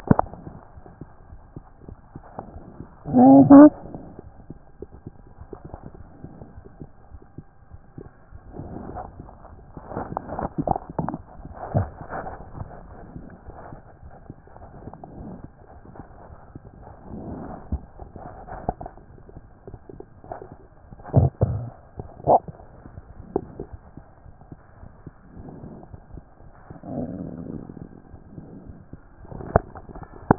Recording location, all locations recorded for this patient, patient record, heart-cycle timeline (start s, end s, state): aortic valve (AV)
aortic valve (AV)+mitral valve (MV)
#Age: Child
#Sex: Female
#Height: 105.0 cm
#Weight: 22.4 kg
#Pregnancy status: False
#Murmur: Absent
#Murmur locations: nan
#Most audible location: nan
#Systolic murmur timing: nan
#Systolic murmur shape: nan
#Systolic murmur grading: nan
#Systolic murmur pitch: nan
#Systolic murmur quality: nan
#Diastolic murmur timing: nan
#Diastolic murmur shape: nan
#Diastolic murmur grading: nan
#Diastolic murmur pitch: nan
#Diastolic murmur quality: nan
#Outcome: Abnormal
#Campaign: 2014 screening campaign
0.00	0.39	unannotated
0.39	0.46	diastole
0.46	0.56	S1
0.56	0.78	systole
0.78	0.84	S2
0.84	1.02	diastole
1.02	1.08	S1
1.08	1.30	systole
1.30	1.40	S2
1.40	1.56	diastole
1.56	1.64	S1
1.64	1.86	systole
1.86	1.96	S2
1.96	2.14	diastole
2.14	2.24	S1
2.24	2.38	systole
2.38	2.44	S2
2.44	2.55	diastole
2.55	2.61	S1
2.61	2.80	systole
2.80	2.86	S2
2.86	3.15	diastole
3.15	30.38	unannotated